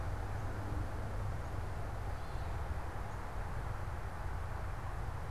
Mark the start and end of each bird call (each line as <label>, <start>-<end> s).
Gray Catbird (Dumetella carolinensis), 2.0-2.6 s